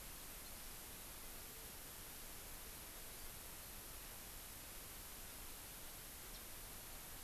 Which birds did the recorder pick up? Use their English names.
House Finch